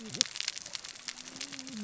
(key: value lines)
label: biophony, cascading saw
recorder: SoundTrap 600 or HydroMoth